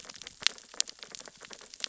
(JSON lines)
{"label": "biophony, sea urchins (Echinidae)", "recorder": "SoundTrap 600 or HydroMoth"}